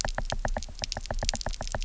{"label": "biophony, knock", "recorder": "SoundTrap 300"}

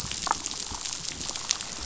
{"label": "biophony, damselfish", "recorder": "SoundTrap 500"}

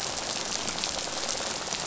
{"label": "biophony", "recorder": "SoundTrap 500"}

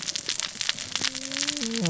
{"label": "biophony, cascading saw", "recorder": "SoundTrap 600 or HydroMoth"}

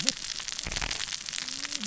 {"label": "biophony, cascading saw", "recorder": "SoundTrap 600 or HydroMoth"}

